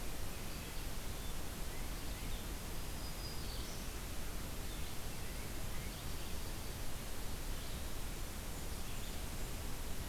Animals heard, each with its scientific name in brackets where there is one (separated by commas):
Black-throated Green Warbler (Setophaga virens), Red-eyed Vireo (Vireo olivaceus)